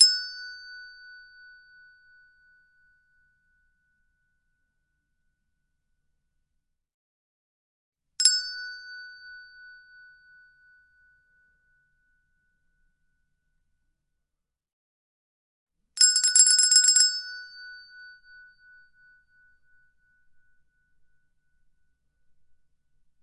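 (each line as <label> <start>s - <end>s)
A handbell rings once. 0.0s - 5.4s
A handbell rings once. 8.0s - 14.3s
A handbell is rung seven times in rapid succession. 15.7s - 22.9s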